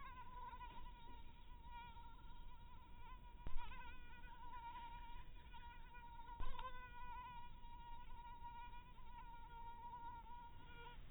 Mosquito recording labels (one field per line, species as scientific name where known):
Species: mosquito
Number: one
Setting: cup